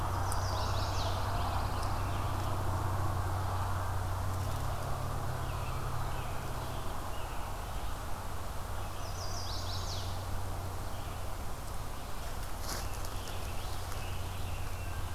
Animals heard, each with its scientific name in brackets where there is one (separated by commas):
Pine Warbler (Setophaga pinus), Scarlet Tanager (Piranga olivacea), Chestnut-sided Warbler (Setophaga pensylvanica)